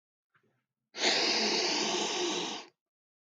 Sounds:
Sniff